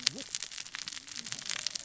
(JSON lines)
{"label": "biophony, cascading saw", "recorder": "SoundTrap 600 or HydroMoth"}